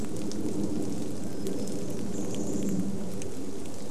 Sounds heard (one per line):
warbler song
rain
Chestnut-backed Chickadee call
airplane